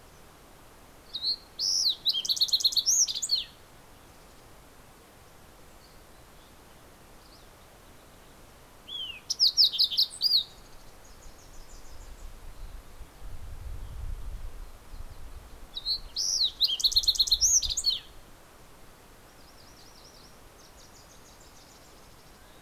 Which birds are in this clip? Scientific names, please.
Passerella iliaca, Cardellina pusilla, Geothlypis tolmiei